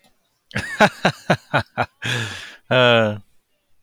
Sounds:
Laughter